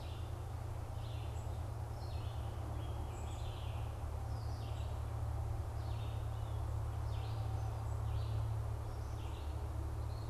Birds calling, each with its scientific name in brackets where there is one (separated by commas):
unidentified bird, Red-eyed Vireo (Vireo olivaceus)